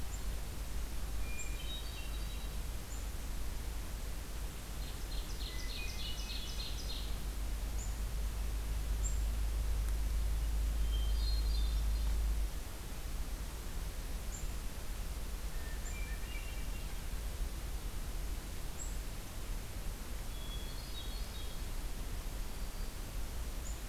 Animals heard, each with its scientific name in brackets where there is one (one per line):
Black-throated Green Warbler (Setophaga virens)
Ovenbird (Seiurus aurocapilla)
Hermit Thrush (Catharus guttatus)